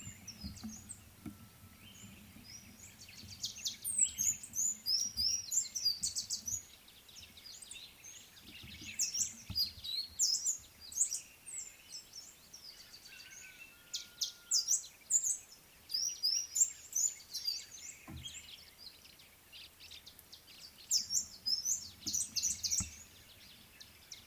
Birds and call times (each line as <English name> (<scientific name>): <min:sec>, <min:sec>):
Amethyst Sunbird (Chalcomitra amethystina): 0:10.4
White-browed Sparrow-Weaver (Plocepasser mahali): 0:19.6